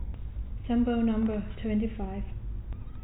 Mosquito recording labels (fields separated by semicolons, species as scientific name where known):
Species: no mosquito; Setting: cup